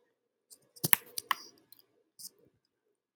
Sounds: Cough